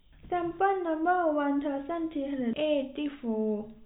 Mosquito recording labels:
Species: no mosquito; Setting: cup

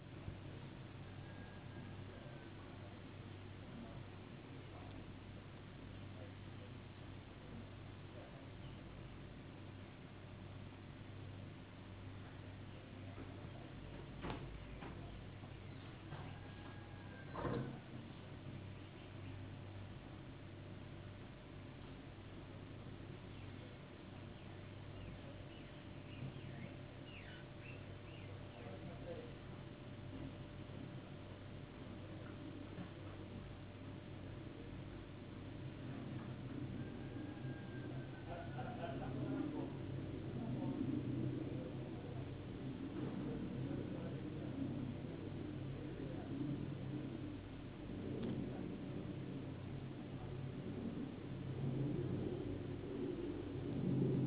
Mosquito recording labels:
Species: no mosquito; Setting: insect culture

